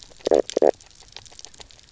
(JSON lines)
{"label": "biophony, knock croak", "recorder": "SoundTrap 300"}